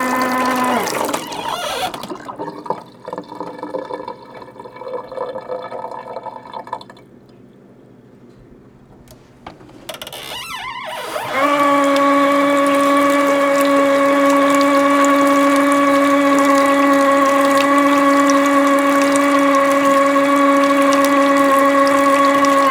What is happening here?
draining